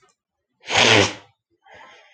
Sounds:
Sniff